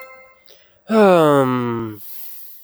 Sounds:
Sigh